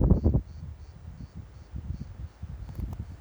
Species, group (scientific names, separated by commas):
Cicada orni, Cicadidae